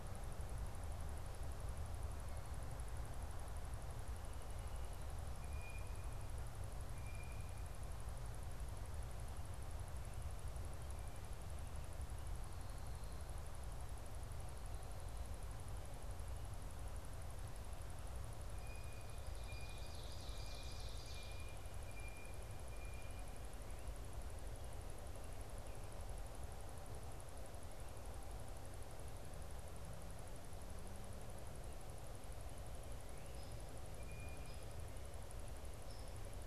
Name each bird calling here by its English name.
Blue Jay, Hairy Woodpecker